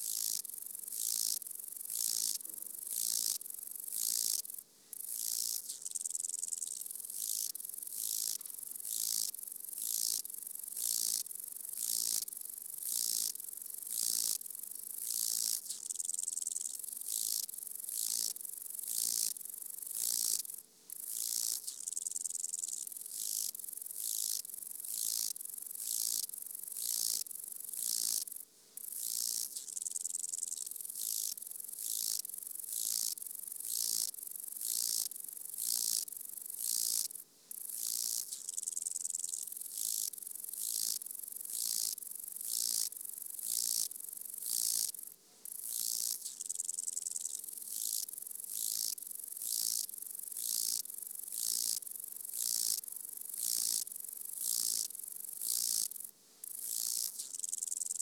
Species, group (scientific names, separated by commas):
Chorthippus albomarginatus, Orthoptera